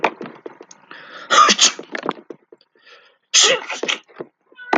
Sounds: Sneeze